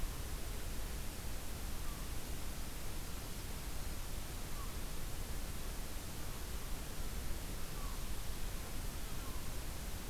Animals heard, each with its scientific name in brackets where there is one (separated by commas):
American Herring Gull (Larus smithsonianus)